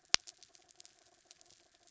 {"label": "anthrophony, mechanical", "recorder": "SoundTrap 300"}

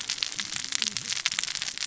{"label": "biophony, cascading saw", "recorder": "SoundTrap 600 or HydroMoth"}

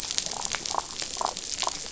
{"label": "biophony, damselfish", "recorder": "SoundTrap 500"}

